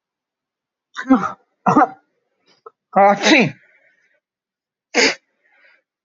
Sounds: Sneeze